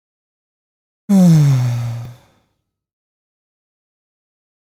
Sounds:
Sigh